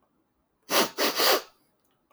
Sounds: Sniff